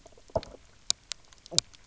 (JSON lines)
{"label": "biophony, knock croak", "recorder": "SoundTrap 300"}